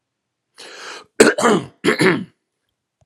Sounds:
Throat clearing